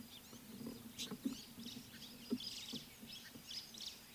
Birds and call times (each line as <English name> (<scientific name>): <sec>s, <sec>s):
White-browed Sparrow-Weaver (Plocepasser mahali): 2.6s